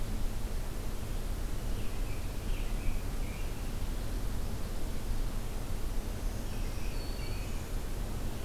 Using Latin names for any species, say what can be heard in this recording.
Turdus migratorius, Setophaga virens